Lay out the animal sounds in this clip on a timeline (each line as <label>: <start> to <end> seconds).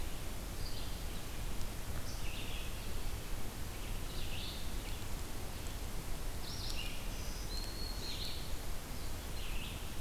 Red-eyed Vireo (Vireo olivaceus): 0.0 to 10.0 seconds
Black-throated Green Warbler (Setophaga virens): 7.0 to 8.2 seconds